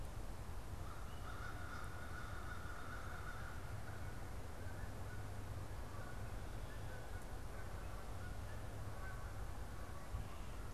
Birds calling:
American Crow (Corvus brachyrhynchos), Canada Goose (Branta canadensis)

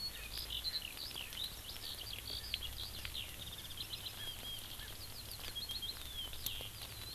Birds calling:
Erckel's Francolin (Pternistis erckelii), Eurasian Skylark (Alauda arvensis)

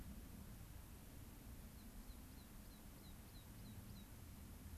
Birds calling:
American Pipit (Anthus rubescens)

